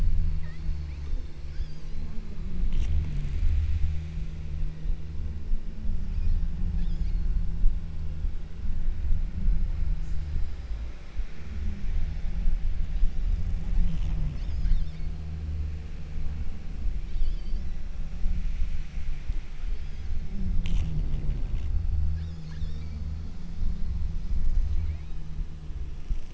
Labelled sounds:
0.4	2.3	killer whale, southern Alaska resident, 1.0 to 6.9 kHz
6.1	7.6	killer whale, southern Alaska resident, 1.4 to 8.0 kHz
14.4	15.4	killer whale, southern Alaska resident, 1.3 to 7.7 kHz
17.1	18.1	killer whale, southern Alaska resident, 1.7 to 8.0 kHz
19.6	20.7	killer whale, southern Alaska resident, 1.5 to 6.9 kHz
22.1	23.2	killer whale, southern Alaska resident, 1.2 to 7.8 kHz
24.8	25.5	killer whale, southern Alaska resident, 1.7 to 5.3 kHz

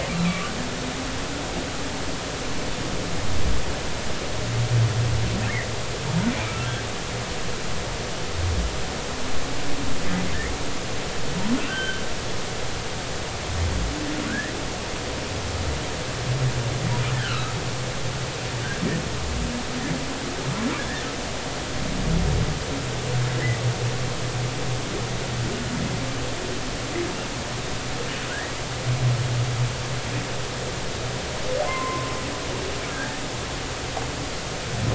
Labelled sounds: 6.3	6.7	humpback whale, 1.2 to 2.5 kHz
11.7	12.0	humpback whale, 1.4 to 3.3 kHz
14.3	14.5	humpback whale, 1.4 to 2.0 kHz
17.1	17.5	humpback whale, 1.2 to 3.2 kHz
31.7	32.1	humpback whale, 0.99 to 1.1 kHz
32.9	33.2	humpback whale, 1.5 to 1.8 kHz

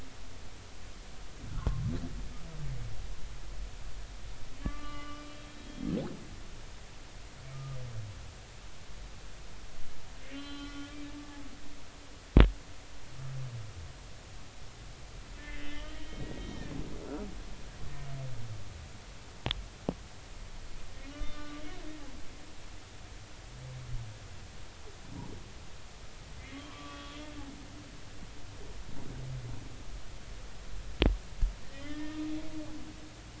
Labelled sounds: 4.6	5.2	humpback whale, 1.1 to 3.0 kHz
7.5	7.8	humpback whale, 1.2 to 1.4 kHz
10.3	11.9	humpback whale, 1.1 to 4.1 kHz
15.4	16.7	humpback whale, 1.7 to 3.8 kHz
17.4	17.6	humpback whale, 3.1 to 3.2 kHz
21.1	21.6	humpback whale, 1.1 to 1.2 kHz
26.4	27.2	humpback whale, 0.96 to 3.4 kHz
31.6	32.2	humpback whale, 1.7 to 3.4 kHz

